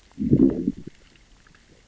{"label": "biophony, growl", "recorder": "SoundTrap 600 or HydroMoth"}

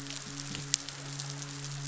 {"label": "biophony, midshipman", "recorder": "SoundTrap 500"}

